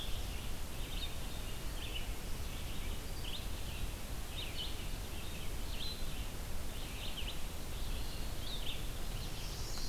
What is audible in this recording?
Red-eyed Vireo, Chestnut-sided Warbler